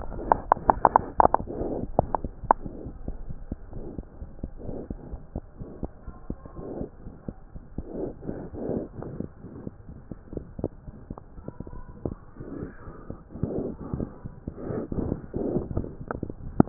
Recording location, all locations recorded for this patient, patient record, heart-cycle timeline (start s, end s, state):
aortic valve (AV)
aortic valve (AV)+pulmonary valve (PV)+tricuspid valve (TV)+mitral valve (MV)
#Age: Infant
#Sex: Female
#Height: 67.0 cm
#Weight: 9.46 kg
#Pregnancy status: False
#Murmur: Absent
#Murmur locations: nan
#Most audible location: nan
#Systolic murmur timing: nan
#Systolic murmur shape: nan
#Systolic murmur grading: nan
#Systolic murmur pitch: nan
#Systolic murmur quality: nan
#Diastolic murmur timing: nan
#Diastolic murmur shape: nan
#Diastolic murmur grading: nan
#Diastolic murmur pitch: nan
#Diastolic murmur quality: nan
#Outcome: Abnormal
#Campaign: 2015 screening campaign
0.00	3.60	unannotated
3.60	3.76	diastole
3.76	3.88	S1
3.88	3.96	systole
3.96	4.06	S2
4.06	4.20	diastole
4.20	4.30	S1
4.30	4.40	systole
4.40	4.50	S2
4.50	4.64	diastole
4.64	4.76	S1
4.76	4.88	systole
4.88	4.95	S2
4.95	5.10	diastole
5.10	5.20	S1
5.20	5.34	systole
5.34	5.44	S2
5.44	5.60	diastole
5.60	5.72	S1
5.72	5.80	systole
5.80	5.90	S2
5.90	6.06	diastole
6.06	6.14	S1
6.14	6.26	systole
6.26	6.38	S2
6.38	6.56	diastole
6.56	6.70	S1
6.70	6.78	systole
6.78	6.88	S2
6.88	7.04	diastole
7.04	7.12	S1
7.12	7.24	systole
7.24	7.34	S2
7.34	7.52	diastole
7.52	7.60	S1
7.60	7.75	systole
7.75	7.85	S2
7.85	8.01	diastole
8.01	9.88	unannotated
9.88	9.98	S1
9.98	10.08	systole
10.08	10.18	S2
10.18	10.32	diastole
10.32	10.48	S1
10.48	10.56	systole
10.56	10.72	S2
10.72	10.84	diastole
10.84	10.98	S1
10.98	11.07	systole
11.07	11.18	S2
11.18	11.36	diastole
11.36	11.46	S1
11.46	11.59	systole
11.59	11.68	S2
11.68	11.88	diastole
11.88	16.69	unannotated